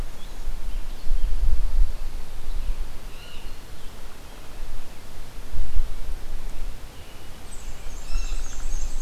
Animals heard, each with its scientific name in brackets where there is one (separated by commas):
Rose-breasted Grosbeak (Pheucticus ludovicianus), Black-and-white Warbler (Mniotilta varia), Pine Warbler (Setophaga pinus), Blue Jay (Cyanocitta cristata), Hairy Woodpecker (Dryobates villosus), American Robin (Turdus migratorius)